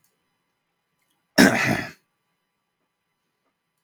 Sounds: Throat clearing